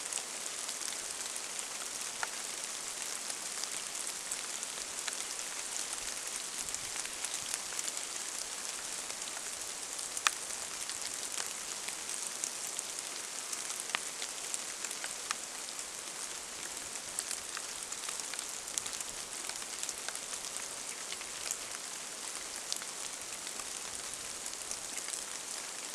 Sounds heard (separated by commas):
rain